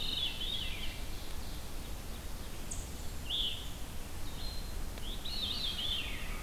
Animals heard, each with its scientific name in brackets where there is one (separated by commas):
Ovenbird (Seiurus aurocapilla), American Crow (Corvus brachyrhynchos), Veery (Catharus fuscescens), Red-eyed Vireo (Vireo olivaceus)